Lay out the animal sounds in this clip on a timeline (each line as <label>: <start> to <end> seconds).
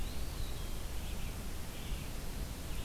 Eastern Wood-Pewee (Contopus virens): 0.0 to 0.9 seconds
Red-eyed Vireo (Vireo olivaceus): 0.8 to 2.8 seconds